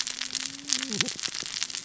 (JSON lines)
{"label": "biophony, cascading saw", "recorder": "SoundTrap 600 or HydroMoth"}